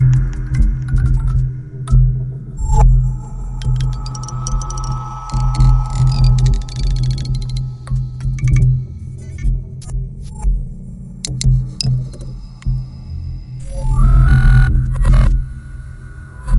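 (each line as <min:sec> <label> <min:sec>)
0:00.0 Electronic clicking sounds. 0:02.2
0:02.6 An electronic device is whirring. 0:03.2
0:03.5 Electronic clicking sounds. 0:10.1
0:10.4 An electronic device is whirring. 0:10.7
0:11.2 Electronic clicking sounds. 0:12.1
0:13.7 An electronic device is whirring. 0:15.5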